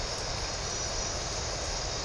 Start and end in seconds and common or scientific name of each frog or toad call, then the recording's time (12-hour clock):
none
5:00am